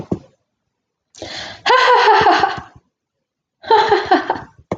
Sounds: Laughter